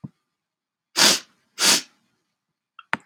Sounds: Sniff